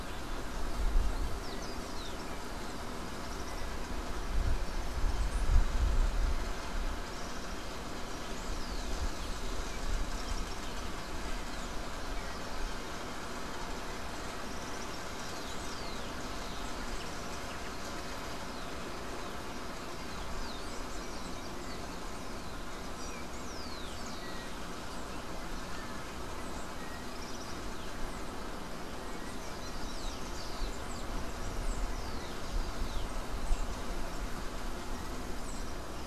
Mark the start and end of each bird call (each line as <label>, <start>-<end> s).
Rufous-collared Sparrow (Zonotrichia capensis), 1.0-2.4 s
Common Tody-Flycatcher (Todirostrum cinereum), 3.0-3.9 s
Rufous-collared Sparrow (Zonotrichia capensis), 8.3-9.6 s
Common Tody-Flycatcher (Todirostrum cinereum), 14.3-15.1 s
Rufous-collared Sparrow (Zonotrichia capensis), 15.0-16.2 s
Rufous-collared Sparrow (Zonotrichia capensis), 19.8-24.8 s
Common Tody-Flycatcher (Todirostrum cinereum), 26.9-27.7 s
Rufous-collared Sparrow (Zonotrichia capensis), 29.3-33.2 s
Common Tody-Flycatcher (Todirostrum cinereum), 35.2-35.7 s